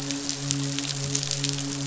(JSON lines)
{"label": "biophony, midshipman", "recorder": "SoundTrap 500"}